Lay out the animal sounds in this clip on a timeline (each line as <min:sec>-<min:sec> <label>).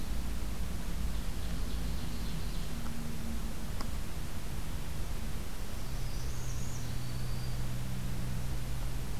0:01.0-0:02.8 Ovenbird (Seiurus aurocapilla)
0:05.6-0:06.8 Northern Parula (Setophaga americana)
0:06.7-0:07.7 Black-throated Green Warbler (Setophaga virens)